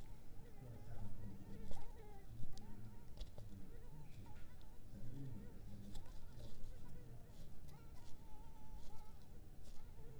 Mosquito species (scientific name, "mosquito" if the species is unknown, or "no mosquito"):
Culex pipiens complex